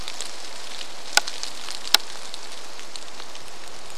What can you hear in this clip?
rain